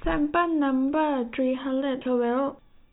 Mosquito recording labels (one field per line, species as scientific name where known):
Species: no mosquito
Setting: cup